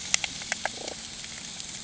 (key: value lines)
label: anthrophony, boat engine
recorder: HydroMoth